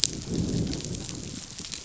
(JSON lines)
{"label": "biophony, growl", "recorder": "SoundTrap 500"}